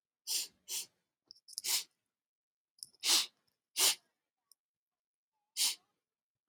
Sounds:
Sniff